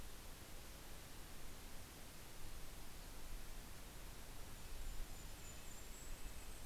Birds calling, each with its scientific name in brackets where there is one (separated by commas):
Red-breasted Nuthatch (Sitta canadensis), Golden-crowned Kinglet (Regulus satrapa)